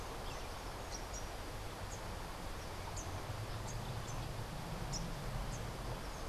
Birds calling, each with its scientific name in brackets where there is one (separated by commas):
Rufous-capped Warbler (Basileuterus rufifrons)